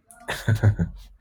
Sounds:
Laughter